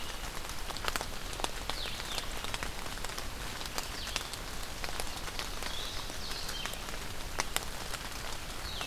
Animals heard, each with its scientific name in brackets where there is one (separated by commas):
Blue-headed Vireo (Vireo solitarius)